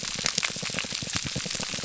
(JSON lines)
{"label": "biophony, pulse", "recorder": "SoundTrap 300"}